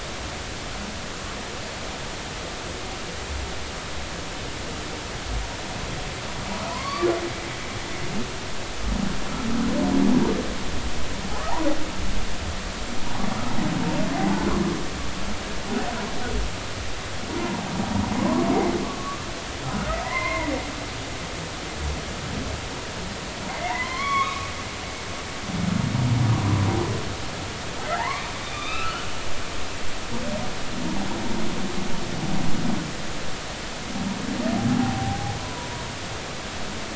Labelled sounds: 6.7	7.1	humpback whale, 0.93 to 4.7 kHz
14.2	14.5	humpback whale, 0.80 to 0.96 kHz
18.2	19.2	humpback whale, 0.93 to 2.2 kHz
20.0	20.5	humpback whale, 0.90 to 4.3 kHz
23.5	24.5	humpback whale, 0.86 to 3.4 kHz
27.9	29.1	humpback whale, 0.80 to 4.0 kHz
29.5	30.1	humpback whale, 1.1 to 1.5 kHz
34.8	35.7	humpback whale, 0.80 to 1.1 kHz

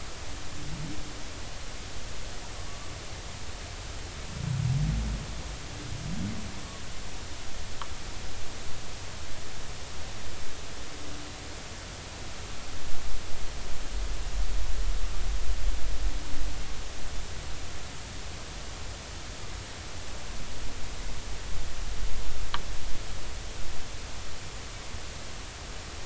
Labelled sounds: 2.7	2.9	humpback whale, 1.1 to 1.2 kHz

